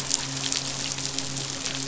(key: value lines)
label: biophony, midshipman
recorder: SoundTrap 500